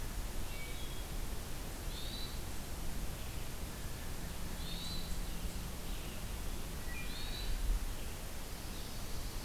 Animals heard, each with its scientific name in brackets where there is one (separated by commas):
Hermit Thrush (Catharus guttatus), Wood Thrush (Hylocichla mustelina), Blue Jay (Cyanocitta cristata)